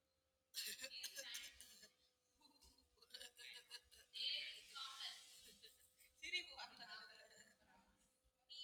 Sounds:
Laughter